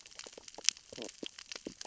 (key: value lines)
label: biophony, stridulation
recorder: SoundTrap 600 or HydroMoth